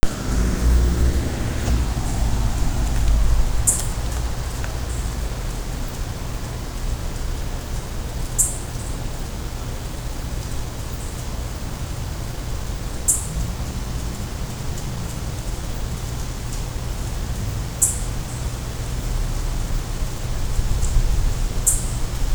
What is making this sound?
Microcentrum rhombifolium, an orthopteran